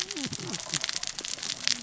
{"label": "biophony, cascading saw", "recorder": "SoundTrap 600 or HydroMoth"}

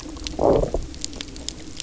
{"label": "biophony, low growl", "recorder": "SoundTrap 300"}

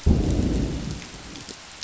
{"label": "biophony, growl", "recorder": "SoundTrap 500"}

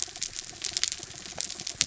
{"label": "anthrophony, mechanical", "recorder": "SoundTrap 300"}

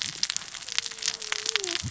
{"label": "biophony, cascading saw", "recorder": "SoundTrap 600 or HydroMoth"}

